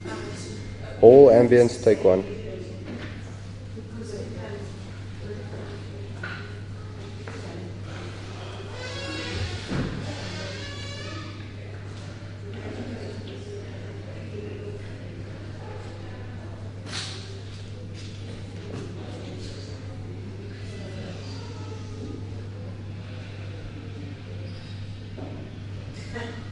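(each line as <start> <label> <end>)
0.7 A male voice pronounces several indistinct words. 2.5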